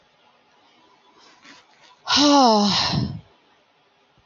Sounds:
Sigh